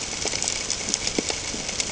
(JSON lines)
{"label": "ambient", "recorder": "HydroMoth"}